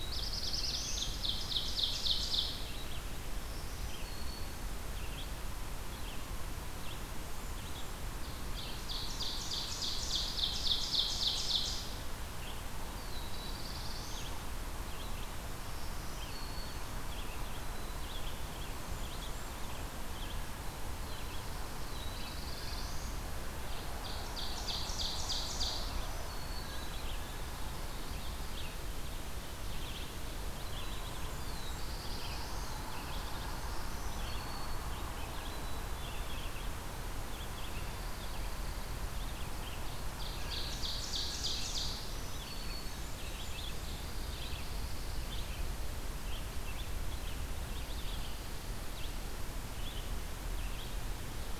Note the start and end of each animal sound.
0.0s-1.1s: Black-throated Blue Warbler (Setophaga caerulescens)
0.0s-7.2s: Red-eyed Vireo (Vireo olivaceus)
0.6s-2.5s: Ovenbird (Seiurus aurocapilla)
3.1s-4.6s: Black-throated Green Warbler (Setophaga virens)
7.5s-51.6s: Red-eyed Vireo (Vireo olivaceus)
8.5s-12.1s: Ovenbird (Seiurus aurocapilla)
12.9s-14.4s: Black-throated Blue Warbler (Setophaga caerulescens)
15.6s-17.0s: Black-throated Green Warbler (Setophaga virens)
17.5s-18.7s: Black-capped Chickadee (Poecile atricapillus)
18.7s-19.8s: Blackburnian Warbler (Setophaga fusca)
20.5s-23.2s: Black-throated Blue Warbler (Setophaga caerulescens)
23.8s-25.9s: Ovenbird (Seiurus aurocapilla)
25.7s-26.9s: Black-throated Green Warbler (Setophaga virens)
26.4s-27.5s: Black-capped Chickadee (Poecile atricapillus)
31.3s-34.0s: Black-throated Blue Warbler (Setophaga caerulescens)
33.7s-34.8s: Black-throated Green Warbler (Setophaga virens)
35.3s-36.5s: Black-capped Chickadee (Poecile atricapillus)
37.8s-38.9s: Pine Warbler (Setophaga pinus)
40.0s-42.1s: Ovenbird (Seiurus aurocapilla)
41.8s-43.1s: Black-throated Green Warbler (Setophaga virens)
43.0s-44.1s: Blackburnian Warbler (Setophaga fusca)
43.8s-45.3s: Pine Warbler (Setophaga pinus)
47.7s-49.0s: Pine Warbler (Setophaga pinus)

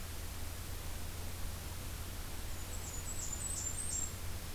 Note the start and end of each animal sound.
2.5s-4.1s: Blackburnian Warbler (Setophaga fusca)

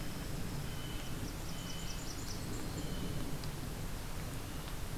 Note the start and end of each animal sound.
0.0s-1.1s: Winter Wren (Troglodytes hiemalis)
0.7s-2.0s: Blue Jay (Cyanocitta cristata)
0.9s-2.9s: Blackburnian Warbler (Setophaga fusca)

